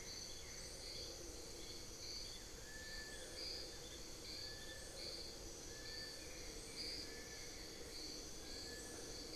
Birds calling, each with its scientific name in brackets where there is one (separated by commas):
Amazonian Barred-Woodcreeper (Dendrocolaptes certhia), Buff-throated Woodcreeper (Xiphorhynchus guttatus), Long-billed Woodcreeper (Nasica longirostris)